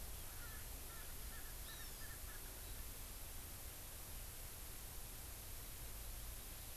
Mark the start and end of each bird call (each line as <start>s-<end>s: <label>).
0.4s-2.4s: Erckel's Francolin (Pternistis erckelii)
1.7s-2.1s: Hawaii Amakihi (Chlorodrepanis virens)